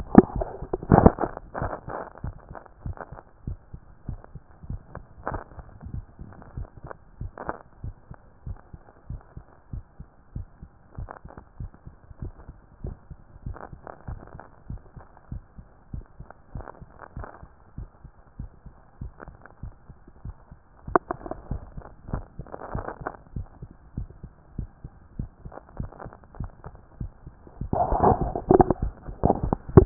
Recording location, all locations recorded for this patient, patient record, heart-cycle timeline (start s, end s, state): mitral valve (MV)
aortic valve (AV)+pulmonary valve (PV)+tricuspid valve (TV)+mitral valve (MV)
#Age: nan
#Sex: Female
#Height: nan
#Weight: nan
#Pregnancy status: True
#Murmur: Absent
#Murmur locations: nan
#Most audible location: nan
#Systolic murmur timing: nan
#Systolic murmur shape: nan
#Systolic murmur grading: nan
#Systolic murmur pitch: nan
#Systolic murmur quality: nan
#Diastolic murmur timing: nan
#Diastolic murmur shape: nan
#Diastolic murmur grading: nan
#Diastolic murmur pitch: nan
#Diastolic murmur quality: nan
#Outcome: Normal
#Campaign: 2014 screening campaign
0.00	2.24	unannotated
2.24	2.36	S1
2.36	2.52	systole
2.52	2.58	S2
2.58	2.84	diastole
2.84	2.96	S1
2.96	3.12	systole
3.12	3.20	S2
3.20	3.46	diastole
3.46	3.58	S1
3.58	3.78	systole
3.78	3.82	S2
3.82	4.08	diastole
4.08	4.20	S1
4.20	4.36	systole
4.36	4.42	S2
4.42	4.68	diastole
4.68	4.80	S1
4.80	4.98	systole
4.98	5.04	S2
5.04	5.28	diastole
5.28	5.42	S1
5.42	5.58	systole
5.58	5.64	S2
5.64	5.86	diastole
5.86	6.04	S1
6.04	6.22	systole
6.22	6.32	S2
6.32	6.56	diastole
6.56	6.68	S1
6.68	6.86	systole
6.86	6.92	S2
6.92	7.20	diastole
7.20	7.30	S1
7.30	7.48	systole
7.48	7.56	S2
7.56	7.82	diastole
7.82	7.94	S1
7.94	8.12	systole
8.12	8.18	S2
8.18	8.48	diastole
8.48	8.58	S1
8.58	8.78	systole
8.78	8.82	S2
8.82	9.10	diastole
9.10	9.20	S1
9.20	9.38	systole
9.38	9.44	S2
9.44	9.72	diastole
9.72	9.82	S1
9.82	10.00	systole
10.00	10.06	S2
10.06	10.34	diastole
10.34	10.46	S1
10.46	10.64	systole
10.64	10.70	S2
10.70	10.98	diastole
10.98	11.08	S1
11.08	11.26	systole
11.26	11.32	S2
11.32	11.60	diastole
11.60	11.70	S1
11.70	11.88	systole
11.88	11.94	S2
11.94	12.22	diastole
12.22	12.32	S1
12.32	12.50	systole
12.50	12.56	S2
12.56	12.84	diastole
12.84	12.96	S1
12.96	13.16	systole
13.16	13.20	S2
13.20	13.46	diastole
13.46	13.56	S1
13.56	13.74	systole
13.74	13.80	S2
13.80	14.08	diastole
14.08	14.20	S1
14.20	14.36	systole
14.36	14.42	S2
14.42	14.70	diastole
14.70	14.80	S1
14.80	14.98	systole
14.98	15.04	S2
15.04	15.32	diastole
15.32	15.42	S1
15.42	15.60	systole
15.60	15.66	S2
15.66	15.94	diastole
15.94	16.04	S1
16.04	16.20	systole
16.20	16.28	S2
16.28	16.56	diastole
16.56	16.66	S1
16.66	16.86	systole
16.86	16.92	S2
16.92	17.18	diastole
17.18	17.26	S1
17.26	17.44	systole
17.44	17.50	S2
17.50	17.78	diastole
17.78	17.88	S1
17.88	18.06	systole
18.06	18.12	S2
18.12	18.40	diastole
18.40	18.50	S1
18.50	18.70	systole
18.70	18.76	S2
18.76	19.02	diastole
19.02	19.12	S1
19.12	19.32	systole
19.32	19.38	S2
19.38	19.64	diastole
19.64	19.72	S1
19.72	19.90	systole
19.90	19.98	S2
19.98	20.26	diastole
20.26	20.34	S1
20.34	20.56	systole
20.56	20.60	S2
20.60	20.88	diastole
20.88	21.00	S1
21.00	21.22	systole
21.22	21.32	S2
21.32	21.50	diastole
21.50	21.62	S1
21.62	21.78	systole
21.78	21.86	S2
21.86	22.10	diastole
22.10	22.24	S1
22.24	22.40	systole
22.40	22.48	S2
22.48	22.72	diastole
22.72	22.86	S1
22.86	23.02	systole
23.02	23.12	S2
23.12	23.34	diastole
23.34	23.46	S1
23.46	23.64	systole
23.64	23.70	S2
23.70	23.96	diastole
23.96	24.08	S1
24.08	24.24	systole
24.24	24.30	S2
24.30	24.56	diastole
24.56	24.68	S1
24.68	24.84	systole
24.84	24.92	S2
24.92	25.18	diastole
25.18	25.30	S1
25.30	25.46	systole
25.46	25.52	S2
25.52	25.78	diastole
25.78	25.90	S1
25.90	26.06	systole
26.06	26.12	S2
26.12	26.38	diastole
26.38	26.50	S1
26.50	26.70	systole
26.70	26.76	S2
26.76	27.00	diastole
27.00	27.12	S1
27.12	27.28	systole
27.28	27.34	S2
27.34	27.62	diastole
27.62	29.86	unannotated